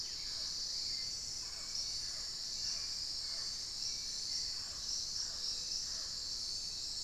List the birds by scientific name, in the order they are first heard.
Turdus hauxwelli, Amazona farinosa